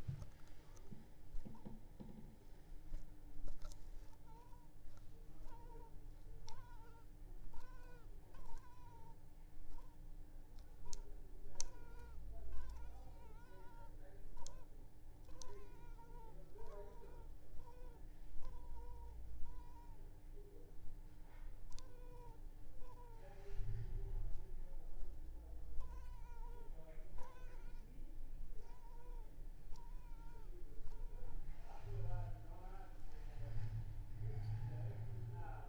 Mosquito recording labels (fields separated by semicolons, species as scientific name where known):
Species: Culex pipiens complex; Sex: female; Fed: unfed; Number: one; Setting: cup